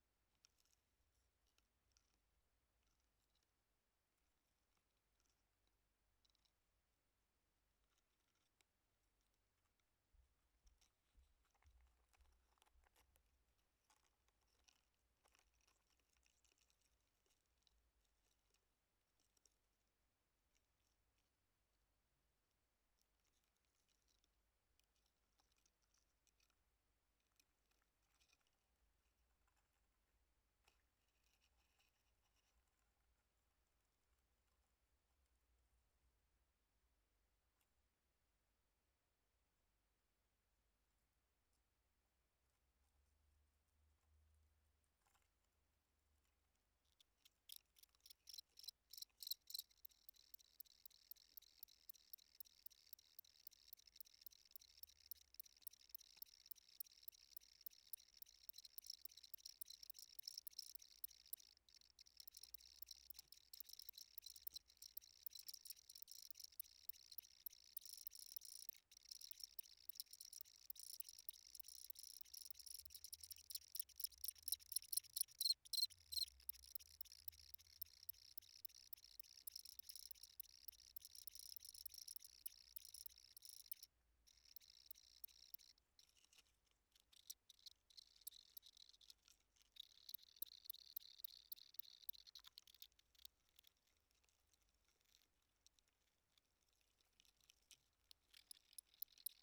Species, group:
Gryllus bimaculatus
Orthoptera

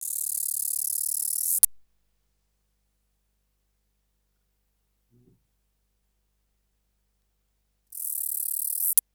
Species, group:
Acrometopa macropoda
Orthoptera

